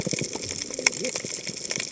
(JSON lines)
{"label": "biophony, cascading saw", "recorder": "HydroMoth"}